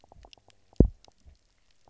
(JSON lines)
{"label": "biophony, double pulse", "recorder": "SoundTrap 300"}